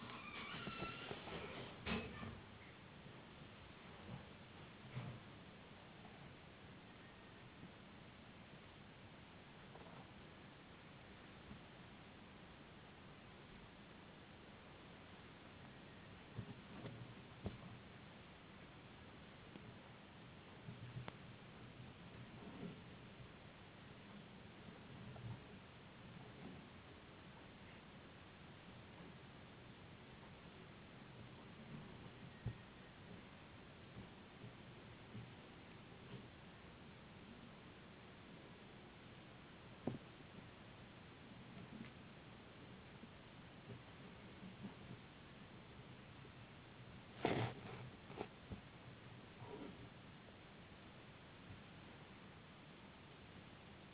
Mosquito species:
no mosquito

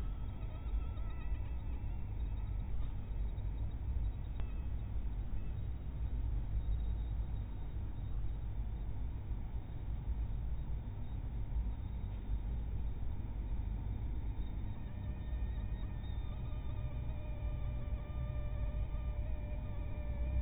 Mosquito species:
mosquito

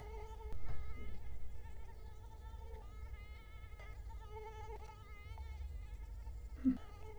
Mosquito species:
Culex quinquefasciatus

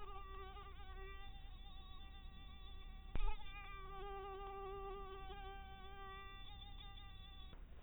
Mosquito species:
mosquito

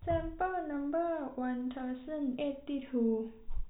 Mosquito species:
no mosquito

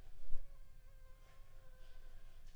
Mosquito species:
Anopheles funestus s.l.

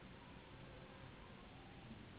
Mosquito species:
Anopheles gambiae s.s.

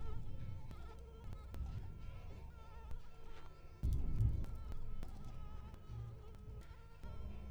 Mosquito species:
Anopheles stephensi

